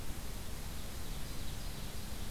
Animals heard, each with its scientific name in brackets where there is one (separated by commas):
Ovenbird (Seiurus aurocapilla)